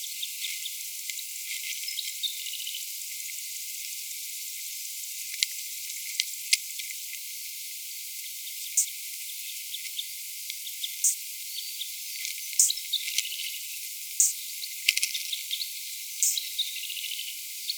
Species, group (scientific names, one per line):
Isophya rhodopensis
Orthoptera